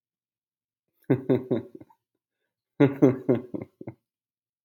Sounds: Laughter